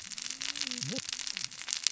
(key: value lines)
label: biophony, cascading saw
recorder: SoundTrap 600 or HydroMoth